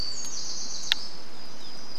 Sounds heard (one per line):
warbler song